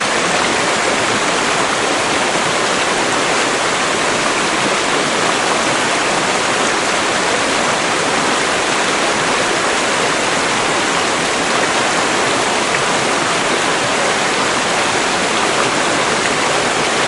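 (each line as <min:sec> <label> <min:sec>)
0:00.0 A heavy stream of water flows continuously with a loud, steady sound. 0:17.1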